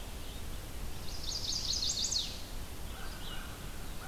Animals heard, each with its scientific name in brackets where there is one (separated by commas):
American Crow (Corvus brachyrhynchos), Chestnut-sided Warbler (Setophaga pensylvanica), Red-eyed Vireo (Vireo olivaceus)